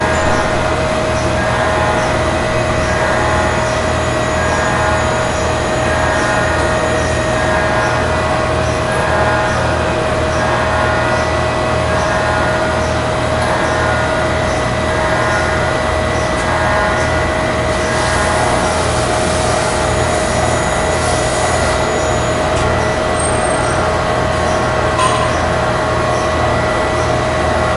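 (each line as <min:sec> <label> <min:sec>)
0:00.0 Mechanical vibrations and steady machine humming form a constant background noise with high-pitched alarm beeps at regular intervals. 0:27.8
0:17.7 A machine produces a loud continuous buzzing sound. 0:22.7
0:24.8 A single loud metallic clang. 0:25.3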